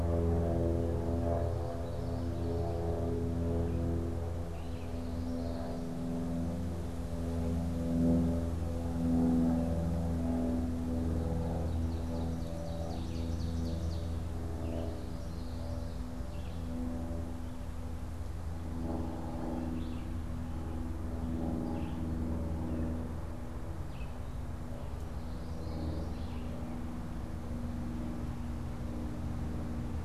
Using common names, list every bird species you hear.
Red-eyed Vireo, Common Yellowthroat, Ovenbird